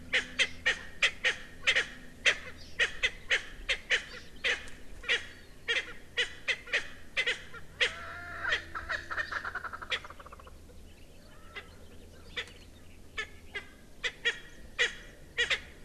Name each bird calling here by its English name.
Erckel's Francolin